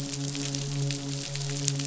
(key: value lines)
label: biophony, midshipman
recorder: SoundTrap 500